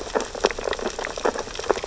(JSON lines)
{"label": "biophony, sea urchins (Echinidae)", "recorder": "SoundTrap 600 or HydroMoth"}